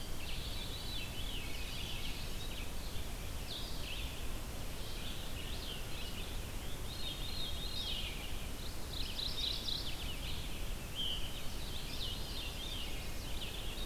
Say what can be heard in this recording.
Veery, Red-eyed Vireo, Blue-headed Vireo, Mourning Warbler, Chestnut-sided Warbler